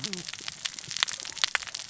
{"label": "biophony, cascading saw", "recorder": "SoundTrap 600 or HydroMoth"}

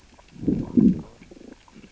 {"label": "biophony, growl", "recorder": "SoundTrap 600 or HydroMoth"}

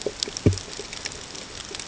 {"label": "ambient", "recorder": "HydroMoth"}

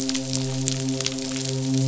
{"label": "biophony, midshipman", "recorder": "SoundTrap 500"}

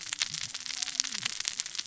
{"label": "biophony, cascading saw", "recorder": "SoundTrap 600 or HydroMoth"}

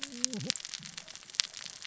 {"label": "biophony, cascading saw", "recorder": "SoundTrap 600 or HydroMoth"}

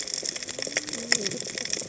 {"label": "biophony, cascading saw", "recorder": "HydroMoth"}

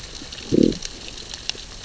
{"label": "biophony, growl", "recorder": "SoundTrap 600 or HydroMoth"}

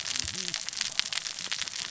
{"label": "biophony, cascading saw", "recorder": "SoundTrap 600 or HydroMoth"}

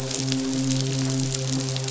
{"label": "biophony, midshipman", "recorder": "SoundTrap 500"}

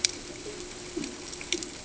{"label": "ambient", "recorder": "HydroMoth"}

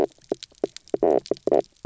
{"label": "biophony, knock croak", "recorder": "SoundTrap 300"}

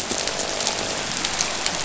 {"label": "biophony, croak", "recorder": "SoundTrap 500"}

